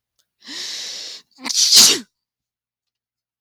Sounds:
Sneeze